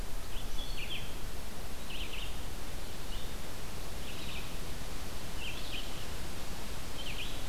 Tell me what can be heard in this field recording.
Red-eyed Vireo